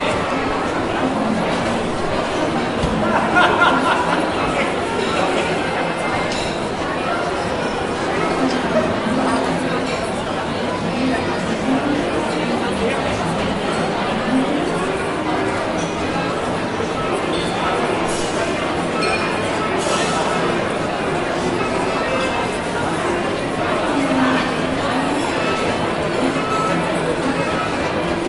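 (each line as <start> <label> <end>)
0.0 People are talking. 28.3
3.2 A person laughs loudly. 4.2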